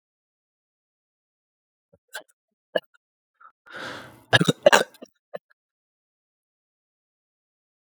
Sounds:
Cough